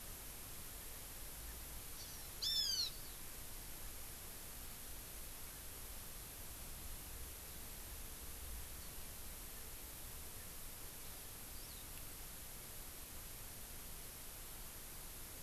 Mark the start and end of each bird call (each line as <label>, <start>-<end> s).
Hawaii Amakihi (Chlorodrepanis virens), 1.9-2.3 s
Hawaiian Hawk (Buteo solitarius), 2.4-2.9 s
Hawaii Amakihi (Chlorodrepanis virens), 11.5-11.8 s